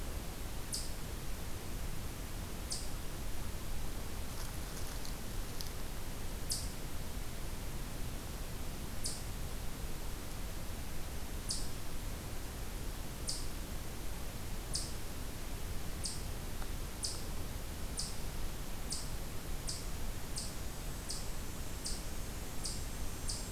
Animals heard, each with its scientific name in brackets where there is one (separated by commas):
Eastern Chipmunk (Tamias striatus)